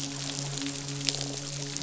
{"label": "biophony, croak", "recorder": "SoundTrap 500"}
{"label": "biophony, midshipman", "recorder": "SoundTrap 500"}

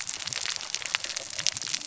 {"label": "biophony, cascading saw", "recorder": "SoundTrap 600 or HydroMoth"}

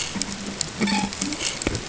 {"label": "ambient", "recorder": "HydroMoth"}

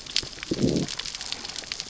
{"label": "biophony, growl", "recorder": "SoundTrap 600 or HydroMoth"}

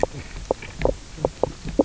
{"label": "biophony, knock croak", "recorder": "SoundTrap 300"}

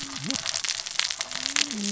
{"label": "biophony, cascading saw", "recorder": "SoundTrap 600 or HydroMoth"}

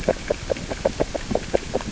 {"label": "biophony, grazing", "recorder": "SoundTrap 600 or HydroMoth"}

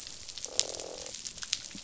{"label": "biophony, croak", "recorder": "SoundTrap 500"}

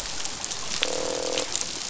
{"label": "biophony, croak", "recorder": "SoundTrap 500"}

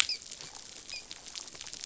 {"label": "biophony, dolphin", "recorder": "SoundTrap 500"}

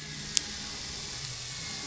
{"label": "anthrophony, boat engine", "recorder": "SoundTrap 500"}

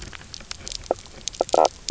{"label": "biophony, knock croak", "recorder": "SoundTrap 300"}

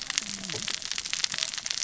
{"label": "biophony, cascading saw", "recorder": "SoundTrap 600 or HydroMoth"}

